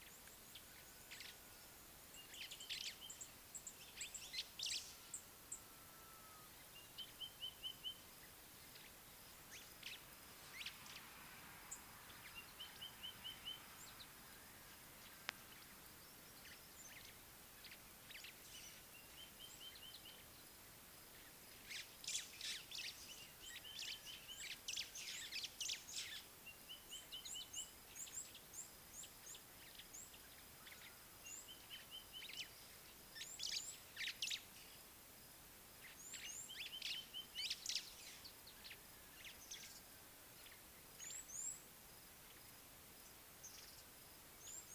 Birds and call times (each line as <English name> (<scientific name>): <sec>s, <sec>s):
White-browed Sparrow-Weaver (Plocepasser mahali): 2.7s, 4.7s, 9.9s, 22.5s, 37.8s
Red-cheeked Cordonbleu (Uraeginthus bengalus): 3.6s, 11.7s, 28.6s, 41.5s
Sulphur-breasted Bushshrike (Telophorus sulfureopectus): 7.5s, 19.7s, 32.0s, 37.0s